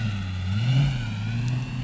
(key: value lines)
label: anthrophony, boat engine
recorder: SoundTrap 500